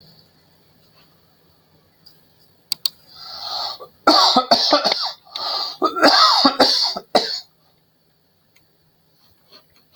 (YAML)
expert_labels:
- quality: good
  cough_type: dry
  dyspnea: false
  wheezing: false
  stridor: false
  choking: false
  congestion: false
  nothing: true
  diagnosis: COVID-19
  severity: mild
age: 50
gender: male
respiratory_condition: false
fever_muscle_pain: false
status: symptomatic